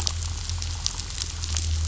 {"label": "anthrophony, boat engine", "recorder": "SoundTrap 500"}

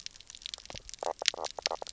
{"label": "biophony, knock croak", "recorder": "SoundTrap 300"}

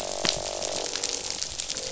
{"label": "biophony, croak", "recorder": "SoundTrap 500"}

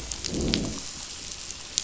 {"label": "biophony, growl", "recorder": "SoundTrap 500"}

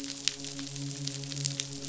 {"label": "biophony, midshipman", "recorder": "SoundTrap 500"}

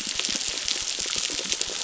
{"label": "biophony, crackle", "recorder": "SoundTrap 600"}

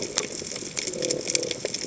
{"label": "biophony", "recorder": "HydroMoth"}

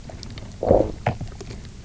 {"label": "biophony, low growl", "recorder": "SoundTrap 300"}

